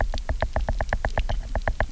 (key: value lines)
label: biophony, knock
recorder: SoundTrap 300